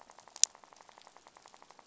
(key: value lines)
label: biophony, rattle
recorder: SoundTrap 500